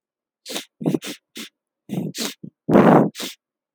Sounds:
Sniff